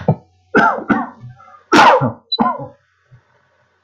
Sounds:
Cough